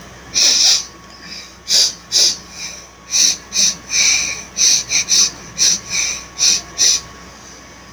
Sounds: Sniff